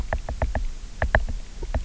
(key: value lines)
label: biophony, knock
recorder: SoundTrap 300